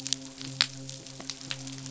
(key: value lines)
label: biophony
recorder: SoundTrap 500

label: biophony, midshipman
recorder: SoundTrap 500